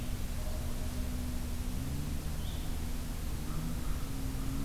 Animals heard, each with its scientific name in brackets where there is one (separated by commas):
Blue-headed Vireo (Vireo solitarius)